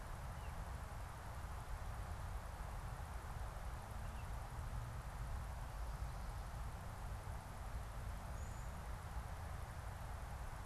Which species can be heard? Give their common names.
Baltimore Oriole, Brown-headed Cowbird